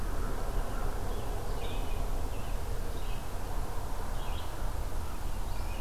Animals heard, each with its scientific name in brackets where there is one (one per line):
Red-eyed Vireo (Vireo olivaceus)
American Robin (Turdus migratorius)